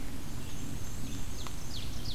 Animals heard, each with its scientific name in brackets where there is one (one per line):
Black-and-white Warbler (Mniotilta varia)
Ovenbird (Seiurus aurocapilla)